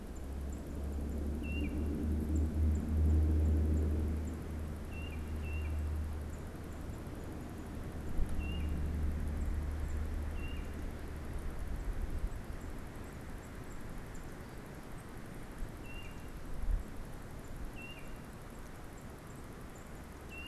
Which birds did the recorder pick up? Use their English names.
unidentified bird, Tufted Titmouse